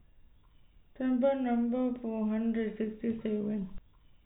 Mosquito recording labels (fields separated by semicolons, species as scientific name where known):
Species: no mosquito; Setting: cup